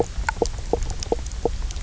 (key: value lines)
label: biophony, knock croak
recorder: SoundTrap 300